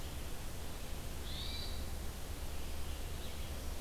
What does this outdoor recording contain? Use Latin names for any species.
Catharus guttatus, Vireo olivaceus